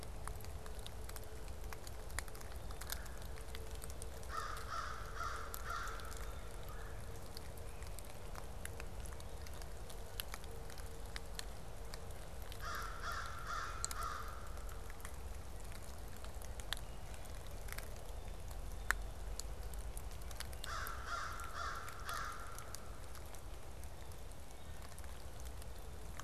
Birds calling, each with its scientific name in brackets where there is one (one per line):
American Crow (Corvus brachyrhynchos)
Red-bellied Woodpecker (Melanerpes carolinus)
Great Crested Flycatcher (Myiarchus crinitus)